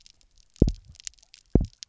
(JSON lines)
{"label": "biophony, double pulse", "recorder": "SoundTrap 300"}